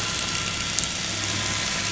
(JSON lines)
{"label": "anthrophony, boat engine", "recorder": "SoundTrap 500"}